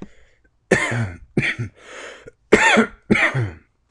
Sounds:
Cough